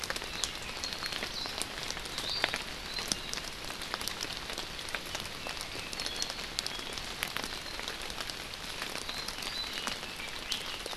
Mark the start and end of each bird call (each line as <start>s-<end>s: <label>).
2.1s-2.6s: Iiwi (Drepanis coccinea)
5.9s-6.9s: Apapane (Himatione sanguinea)